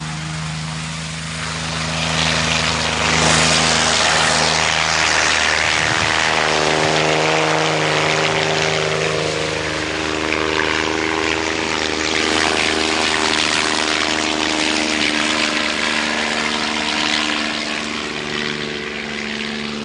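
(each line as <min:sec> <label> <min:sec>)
0:00.0 A helicopter flies loudly by, fading into the distance. 0:19.8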